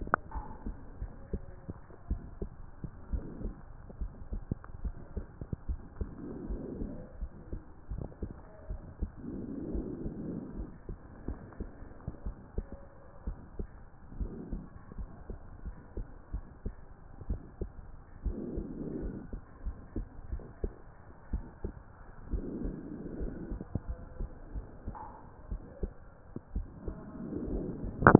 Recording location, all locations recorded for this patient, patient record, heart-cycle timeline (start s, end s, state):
pulmonary valve (PV)
aortic valve (AV)+pulmonary valve (PV)+tricuspid valve (TV)
#Age: Child
#Sex: Female
#Height: 139.0 cm
#Weight: 57.6 kg
#Pregnancy status: False
#Murmur: Absent
#Murmur locations: nan
#Most audible location: nan
#Systolic murmur timing: nan
#Systolic murmur shape: nan
#Systolic murmur grading: nan
#Systolic murmur pitch: nan
#Systolic murmur quality: nan
#Diastolic murmur timing: nan
#Diastolic murmur shape: nan
#Diastolic murmur grading: nan
#Diastolic murmur pitch: nan
#Diastolic murmur quality: nan
#Outcome: Abnormal
#Campaign: 2015 screening campaign
0.00	1.77	unannotated
1.77	2.06	diastole
2.06	2.22	S1
2.22	2.40	systole
2.40	2.52	S2
2.52	3.08	diastole
3.08	3.20	S1
3.20	3.42	systole
3.42	3.54	S2
3.54	3.98	diastole
3.98	4.12	S1
4.12	4.31	systole
4.31	4.48	S2
4.48	4.80	diastole
4.80	4.94	S1
4.94	5.14	systole
5.14	5.30	S2
5.30	5.62	diastole
5.62	5.78	S1
5.78	5.96	systole
5.96	6.12	S2
6.12	6.44	diastole
6.44	6.60	S1
6.60	6.78	systole
6.78	6.90	S2
6.90	7.18	diastole
7.18	7.30	S1
7.30	7.48	systole
7.48	7.60	S2
7.60	7.90	diastole
7.90	8.02	S1
8.02	8.22	systole
8.22	8.38	S2
8.38	8.68	diastole
8.68	8.82	S1
8.82	9.00	systole
9.00	9.12	S2
9.12	9.70	diastole
9.70	9.86	S1
9.86	10.03	systole
10.03	10.12	S2
10.12	10.56	diastole
10.56	10.68	S1
10.68	10.86	systole
10.86	10.98	S2
10.98	11.26	diastole
11.26	11.38	S1
11.38	11.58	systole
11.58	11.71	S2
11.71	12.22	diastole
12.22	12.34	S1
12.34	12.54	systole
12.54	12.68	S2
12.68	13.25	diastole
13.25	13.36	S1
13.36	13.58	systole
13.58	13.68	S2
13.68	14.16	diastole
14.16	14.32	S1
14.32	14.50	systole
14.50	14.64	S2
14.64	14.96	diastole
14.96	15.08	S1
15.08	15.28	systole
15.28	15.38	S2
15.38	15.64	diastole
15.64	15.76	S1
15.76	15.95	systole
15.95	16.08	S2
16.08	16.31	diastole
16.31	16.44	S1
16.44	16.62	systole
16.62	16.74	S2
16.74	17.28	diastole
17.28	17.40	S1
17.40	17.59	systole
17.59	17.71	S2
17.71	18.22	diastole
18.22	18.38	S1
18.38	18.56	systole
18.56	18.70	S2
18.70	18.94	diastole
18.94	19.12	S1
19.12	19.32	systole
19.32	19.42	S2
19.42	19.64	diastole
19.64	19.76	S1
19.76	19.94	systole
19.94	20.08	S2
20.08	20.30	diastole
20.30	20.44	S1
20.44	20.60	systole
20.60	20.74	S2
20.74	21.30	diastole
21.30	21.44	S1
21.44	21.62	systole
21.62	21.74	S2
21.74	22.28	diastole
22.28	22.46	S1
22.46	22.62	systole
22.62	22.78	S2
22.78	23.14	diastole
23.14	23.32	S1
23.32	23.50	systole
23.50	23.62	S2
23.62	23.88	diastole
23.88	24.00	S1
24.00	24.20	systole
24.20	24.32	S2
24.32	24.54	diastole
24.54	24.66	S1
24.66	24.86	systole
24.86	24.98	S2
24.98	25.49	diastole
25.49	25.62	S1
25.62	25.82	systole
25.82	25.91	S2
25.91	26.18	diastole
26.18	28.19	unannotated